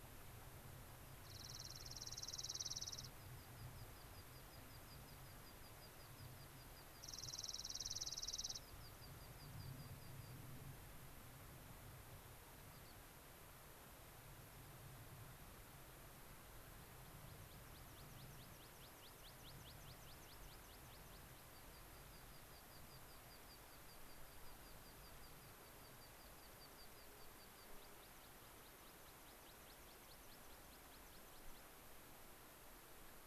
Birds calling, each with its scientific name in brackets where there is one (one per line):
American Pipit (Anthus rubescens)
Dark-eyed Junco (Junco hyemalis)